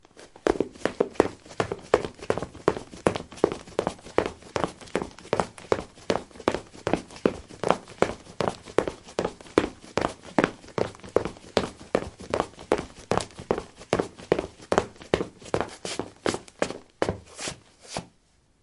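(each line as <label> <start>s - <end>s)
Footsteps of a person running on linoleum. 0.2s - 17.2s
Shoes sliding. 17.2s - 18.3s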